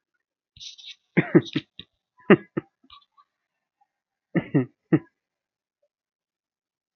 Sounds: Laughter